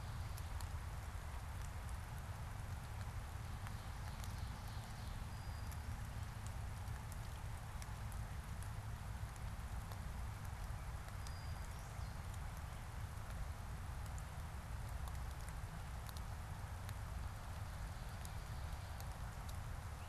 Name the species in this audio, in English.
Ovenbird, Brown-headed Cowbird